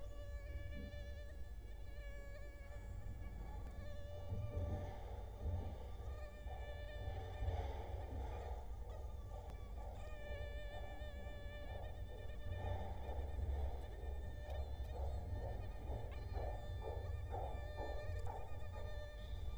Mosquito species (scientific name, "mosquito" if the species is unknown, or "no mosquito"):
Culex quinquefasciatus